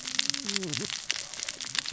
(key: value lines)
label: biophony, cascading saw
recorder: SoundTrap 600 or HydroMoth